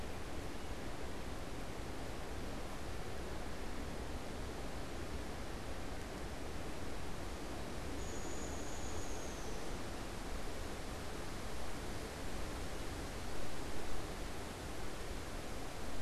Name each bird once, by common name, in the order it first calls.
Downy Woodpecker